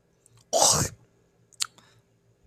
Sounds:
Throat clearing